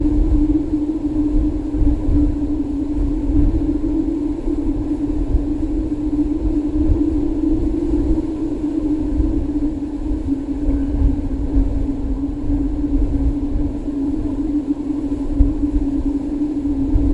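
0.0s Strong wind currents are howling. 17.1s

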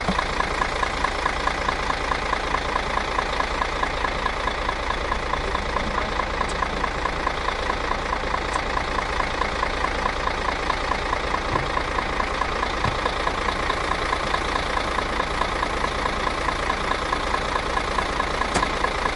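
0.0s A diesel engine ticks rhythmically and continuously. 19.2s

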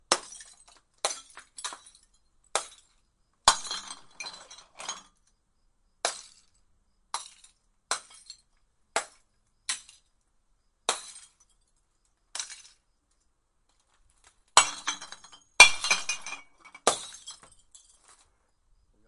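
0.0s Glass bottles breaking repeatedly as they are dropped. 12.8s
14.5s Glass bottles breaking repeatedly as they are dropped. 18.6s

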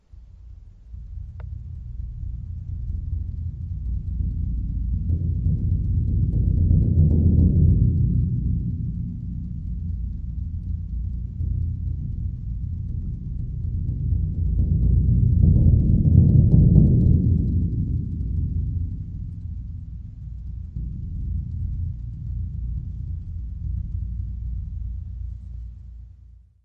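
0.0s A low, droning hum steadily builds up, fades, builds up again, and then fades completely. 26.0s

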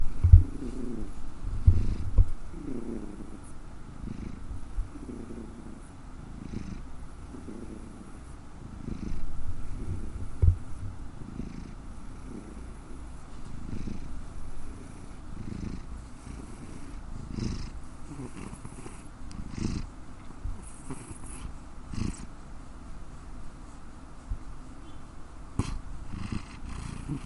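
0.7s A cat is purring calmly and continuously. 26.8s
10.3s A microphone is bumping. 10.7s

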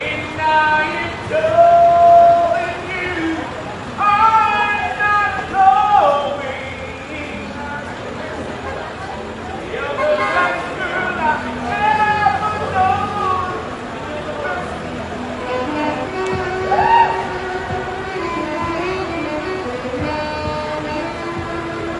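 0.0s Someone is signing outdoors. 7.8s
3.5s Car engine idling nearby. 4.0s
7.7s Car engine idling nearby. 9.5s
8.6s A car horn sounds. 9.2s
9.6s Someone is signing outdoors. 13.9s
9.9s A car horn sounds. 10.6s
15.4s A saxophone plays. 22.0s
16.6s A group of people joyfully scream outdoors. 17.2s

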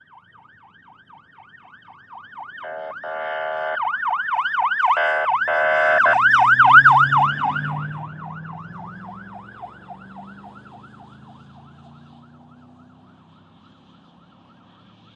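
0.0s A police car siren wails loudly and repeatedly outdoors. 15.2s
5.4s A police car honks twice loudly while passing by. 7.3s

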